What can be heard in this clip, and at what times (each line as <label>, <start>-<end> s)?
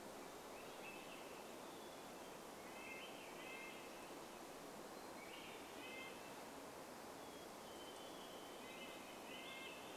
Swainson's Thrush song, 0-6 s
Hermit Thrush song, 0-8 s
Red-breasted Nuthatch song, 2-10 s
Varied Thrush song, 6-10 s
Swainson's Thrush song, 8-10 s